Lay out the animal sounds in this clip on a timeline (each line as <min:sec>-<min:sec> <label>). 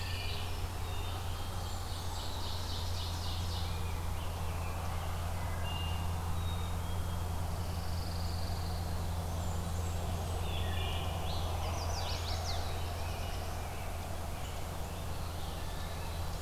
0:00.0-0:00.5 Scarlet Tanager (Piranga olivacea)
0:00.0-0:00.7 Wood Thrush (Hylocichla mustelina)
0:00.0-0:00.8 Pine Warbler (Setophaga pinus)
0:00.7-0:01.9 Black-capped Chickadee (Poecile atricapillus)
0:01.2-0:02.3 Blackburnian Warbler (Setophaga fusca)
0:01.4-0:03.8 Ovenbird (Seiurus aurocapilla)
0:03.3-0:05.2 Rose-breasted Grosbeak (Pheucticus ludovicianus)
0:05.1-0:06.4 Wood Thrush (Hylocichla mustelina)
0:06.2-0:07.4 Black-capped Chickadee (Poecile atricapillus)
0:07.4-0:09.2 Pine Warbler (Setophaga pinus)
0:08.9-0:10.5 Blackburnian Warbler (Setophaga fusca)
0:10.2-0:11.9 Scarlet Tanager (Piranga olivacea)
0:10.3-0:11.3 Wood Thrush (Hylocichla mustelina)
0:11.4-0:12.6 Chestnut-sided Warbler (Setophaga pensylvanica)
0:12.1-0:14.7 Rose-breasted Grosbeak (Pheucticus ludovicianus)
0:12.3-0:13.8 Black-throated Blue Warbler (Setophaga caerulescens)